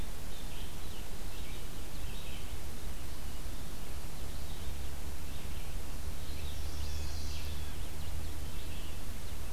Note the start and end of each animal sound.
0.3s-9.5s: Red-eyed Vireo (Vireo olivaceus)
6.4s-7.6s: Chestnut-sided Warbler (Setophaga pensylvanica)
6.6s-7.8s: Magnolia Warbler (Setophaga magnolia)

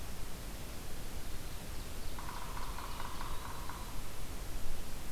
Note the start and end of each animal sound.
1.3s-3.4s: Ovenbird (Seiurus aurocapilla)
1.9s-4.0s: Yellow-bellied Sapsucker (Sphyrapicus varius)

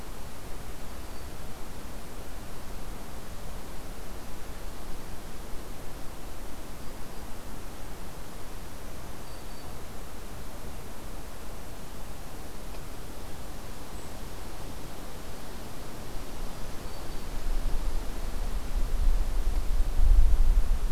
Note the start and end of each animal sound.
9.1s-9.9s: Black-throated Green Warbler (Setophaga virens)
13.9s-14.1s: White-throated Sparrow (Zonotrichia albicollis)
16.5s-17.4s: Black-throated Green Warbler (Setophaga virens)

